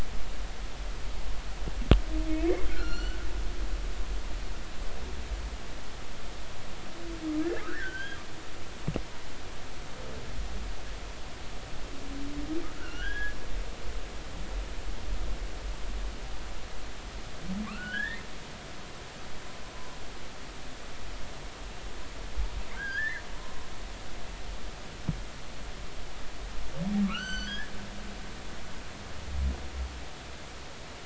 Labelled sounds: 2.7	3.2	humpback whale, 1.3 to 6.0 kHz
7.4	8.2	humpback whale, 1.2 to 3.3 kHz
12.8	13.4	humpback whale, 1.3 to 3.4 kHz
17.7	18.2	humpback whale, 1.0 to 3.8 kHz
22.7	23.7	humpback whale, 0.96 to 2.1 kHz
27.0	27.7	humpback whale, 1.1 to 7.7 kHz

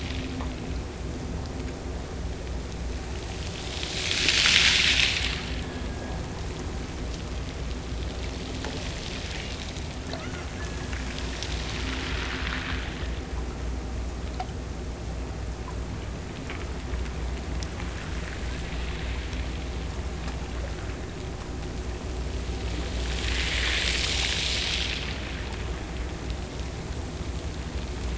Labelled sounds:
5.3	6.4	killer whale, Bigg's (transient), Gulf of Alaska transient, 1.5 to 1.9 kHz
10.1	11.2	killer whale, Bigg's (transient), Gulf of Alaska transient, 1.0 to 3.0 kHz

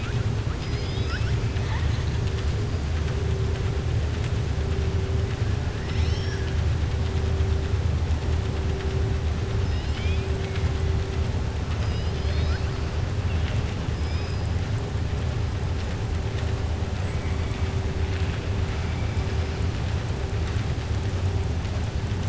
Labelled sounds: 0.5	2.2	killer whale, southern resident, 0.87 to 5.6 kHz
5.8	6.6	killer whale, southern resident, 1.5 to 6.2 kHz
9.6	10.3	killer whale, southern resident, 1.8 to 5.3 kHz
11.7	12.8	killer whale, southern resident, 1.3 to 5.5 kHz
13.9	14.5	killer whale, southern resident, 2.3 to 5.7 kHz

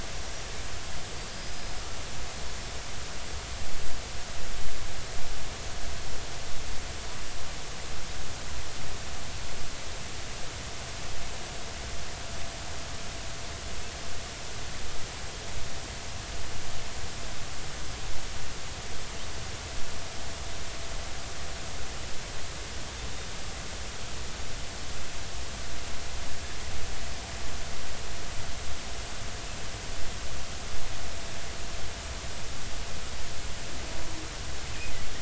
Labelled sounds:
1.2	1.8	small unidentified odontocete, 4.6 to 5.1 kHz

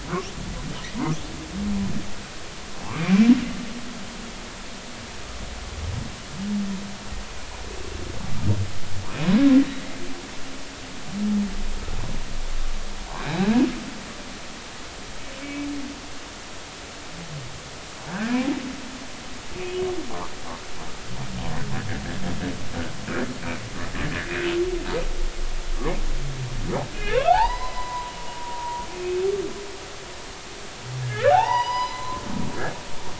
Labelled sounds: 2.8	3.3	humpback whale, 0.80 to 2.5 kHz
15.4	15.7	humpback whale, 2.2 to 2.4 kHz
18.1	18.4	humpback whale, 1.4 to 1.9 kHz
26.9	29.2	humpback whale, 0.80 to 5.0 kHz
31.0	32.2	humpback whale, 0.80 to 6.0 kHz

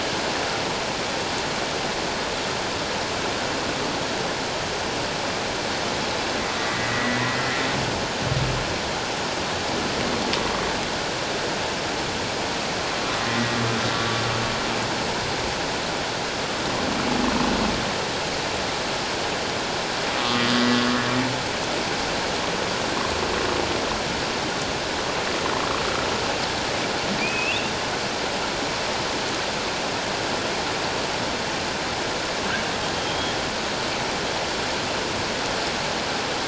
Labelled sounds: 6.6	7.3	humpback whale, 1.8 to 2.0 kHz
20.2	20.6	humpback whale, 1.1 to 3.2 kHz
27.2	27.7	humpback whale, 2.3 to 2.9 kHz
33.0	33.3	humpback whale, 3.1 to 3.4 kHz

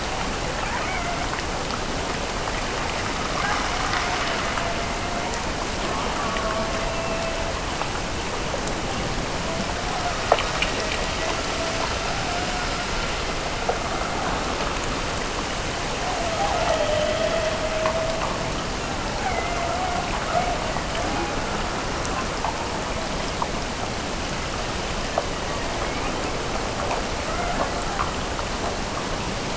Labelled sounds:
3.3	5.4	killer whale, Bigg's (transient), Gulf of Alaska transient, 0.46 to 1.8 kHz
5.9	7.6	killer whale, Bigg's (transient), Gulf of Alaska transient, 0.44 to 1.3 kHz
10.9	13.0	killer whale, Bigg's (transient), Gulf of Alaska transient, 0.55 to 1.5 kHz
16.1	18.5	killer whale, Bigg's (transient), Gulf of Alaska transient, 0.41 to 2.0 kHz
19.0	20.9	killer whale, Bigg's (transient), Gulf of Alaska transient, 0.55 to 2.4 kHz
27.1	28.0	killer whale, Bigg's (transient), Gulf of Alaska transient, 0.44 to 2.2 kHz

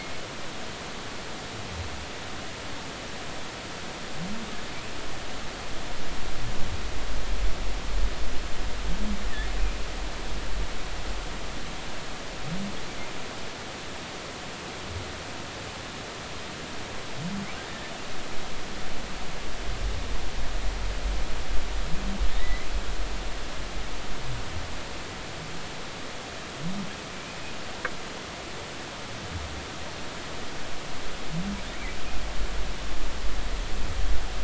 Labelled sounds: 22.4	22.7	humpback whale, 1.8 to 2.1 kHz

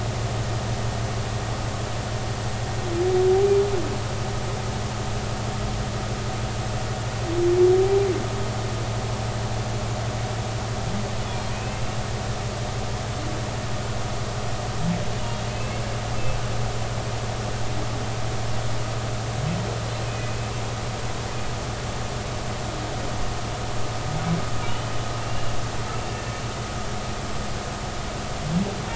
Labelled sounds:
11.5	12.0	humpback whale, 2.4 to 2.8 kHz
15.5	15.8	humpback whale, 2.5 to 2.8 kHz
20.0	20.5	humpback whale, 2.4 to 2.6 kHz
24.6	25.5	humpback whale, 2.7 to 3.1 kHz
26.1	26.3	humpback whale, 1.7 to 1.8 kHz

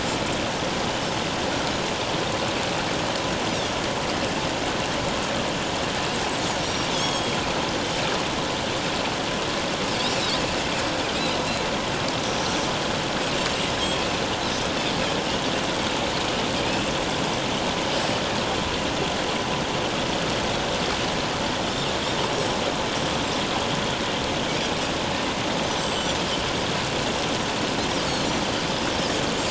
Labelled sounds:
1.0	1.3	Pacific white-sided dolphin, 5.1 to 5.5 kHz
6.6	7.4	Pacific white-sided dolphin, 3.1 to 6.7 kHz
12.2	12.5	Pacific white-sided dolphin, 5.4 to 6.1 kHz
22.3	22.6	Pacific white-sided dolphin, 5.4 to 5.7 kHz
25.8	26.2	Pacific white-sided dolphin, 7.1 to 7.8 kHz
28.0	28.4	Pacific white-sided dolphin, 4.2 to 4.6 kHz

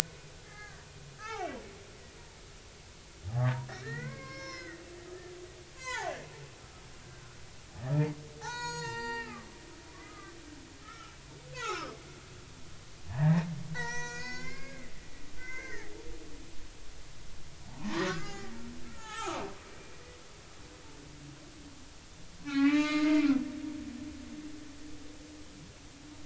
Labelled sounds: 0.4	1.6	humpback whale, 0.80 to 2.4 kHz
3.8	4.8	humpback whale, 0.90 to 6.0 kHz
5.7	6.2	humpback whale, 0.80 to 7.4 kHz
7.8	9.6	humpback whale, 0.80 to 8.0 kHz
9.9	11.2	humpback whale, 1.1 to 2.1 kHz
11.5	12.0	humpback whale, 0.80 to 5.6 kHz
13.1	15.9	humpback whale, 0.80 to 7.3 kHz
17.7	19.4	humpback whale, 0.80 to 7.0 kHz
19.9	20.2	humpback whale, 1.9 to 2.0 kHz
22.4	23.2	humpback whale, 0.80 to 3.0 kHz

